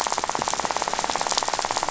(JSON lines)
{"label": "biophony, rattle", "recorder": "SoundTrap 500"}